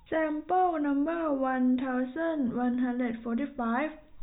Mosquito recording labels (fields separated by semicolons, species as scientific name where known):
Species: no mosquito; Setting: cup